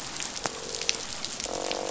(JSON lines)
{"label": "biophony, croak", "recorder": "SoundTrap 500"}